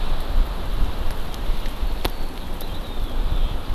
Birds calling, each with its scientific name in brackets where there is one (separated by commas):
Eurasian Skylark (Alauda arvensis)